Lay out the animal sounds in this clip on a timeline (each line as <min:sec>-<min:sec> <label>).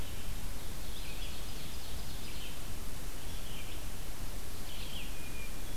0:00.0-0:05.8 Red-eyed Vireo (Vireo olivaceus)
0:00.7-0:02.6 Ovenbird (Seiurus aurocapilla)
0:05.0-0:05.8 Hermit Thrush (Catharus guttatus)